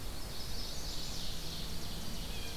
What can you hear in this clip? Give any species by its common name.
Ovenbird, Chestnut-sided Warbler